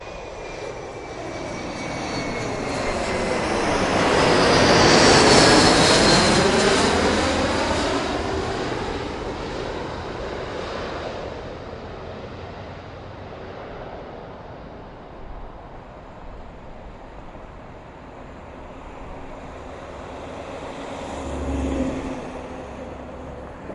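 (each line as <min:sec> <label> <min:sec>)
0:00.0 An airplane's engine sounds grow louder and deeper as it approaches, then fades gradually as it passes by. 0:09.5
0:09.5 An airplane flies away with a fading engine sound in the distance. 0:23.7
0:19.6 A truck or ground vehicle drives by with a low, rolling engine sound. 0:23.7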